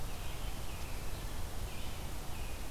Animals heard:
forest ambience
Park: Marsh-Billings-Rockefeller National Historical Park